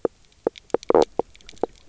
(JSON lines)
{"label": "biophony, knock croak", "recorder": "SoundTrap 300"}